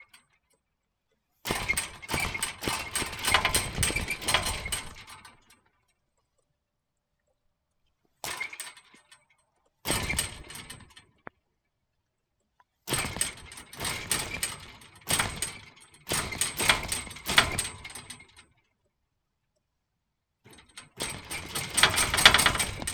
Are people talking?
no